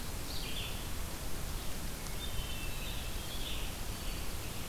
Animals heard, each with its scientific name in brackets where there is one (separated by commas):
Red-eyed Vireo (Vireo olivaceus), Scarlet Tanager (Piranga olivacea), Hermit Thrush (Catharus guttatus)